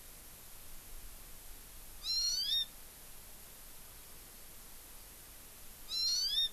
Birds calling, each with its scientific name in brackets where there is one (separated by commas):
Hawaii Amakihi (Chlorodrepanis virens)